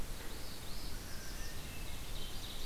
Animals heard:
Ovenbird (Seiurus aurocapilla)
Hermit Thrush (Catharus guttatus)
Northern Parula (Setophaga americana)

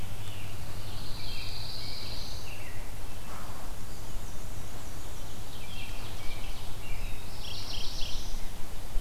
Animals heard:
Mourning Warbler (Geothlypis philadelphia)
American Robin (Turdus migratorius)
Pine Warbler (Setophaga pinus)
Black-throated Blue Warbler (Setophaga caerulescens)
Black-and-white Warbler (Mniotilta varia)
Ovenbird (Seiurus aurocapilla)

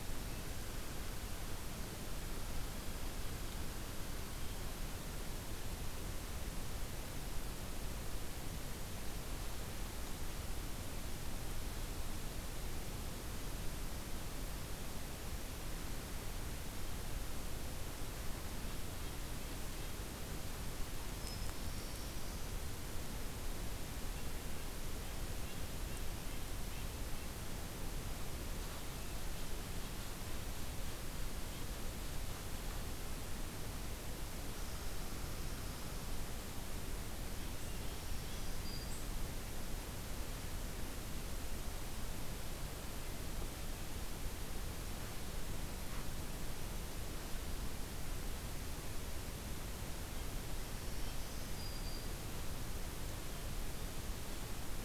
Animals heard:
Black-throated Blue Warbler (Setophaga caerulescens)
Black-throated Green Warbler (Setophaga virens)

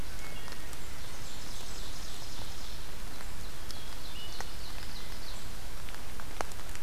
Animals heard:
Wood Thrush (Hylocichla mustelina)
Blackburnian Warbler (Setophaga fusca)
Ovenbird (Seiurus aurocapilla)

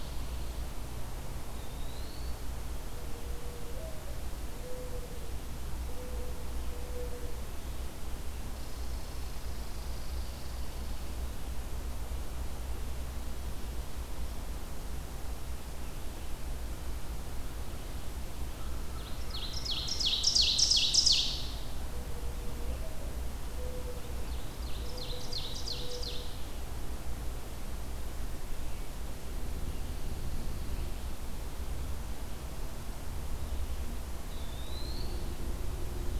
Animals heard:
Eastern Wood-Pewee (Contopus virens)
Mourning Dove (Zenaida macroura)
Red Squirrel (Tamiasciurus hudsonicus)
Ovenbird (Seiurus aurocapilla)
American Crow (Corvus brachyrhynchos)

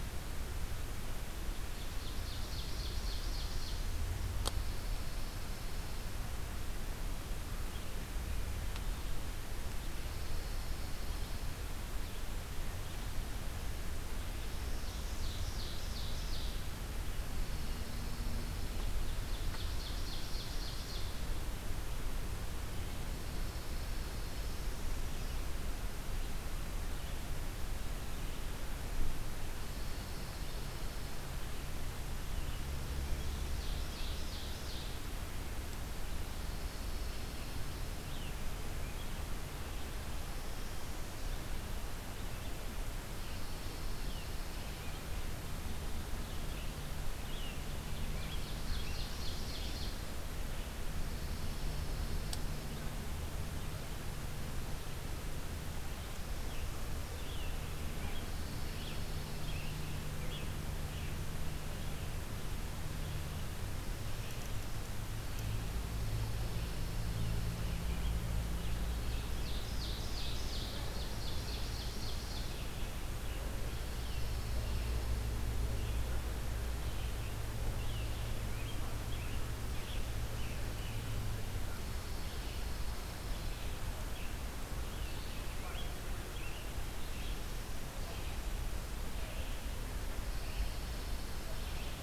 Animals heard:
Ovenbird (Seiurus aurocapilla)
Pine Warbler (Setophaga pinus)
Red-eyed Vireo (Vireo olivaceus)
Scarlet Tanager (Piranga olivacea)

